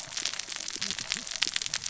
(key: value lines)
label: biophony, cascading saw
recorder: SoundTrap 600 or HydroMoth